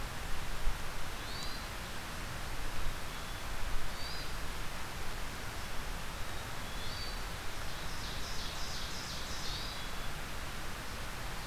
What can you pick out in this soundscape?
Hermit Thrush, Black-capped Chickadee, Ovenbird